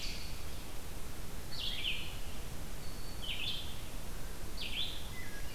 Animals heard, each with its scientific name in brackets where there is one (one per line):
Wood Thrush (Hylocichla mustelina)
Ovenbird (Seiurus aurocapilla)
Black-throated Green Warbler (Setophaga virens)
Red-eyed Vireo (Vireo olivaceus)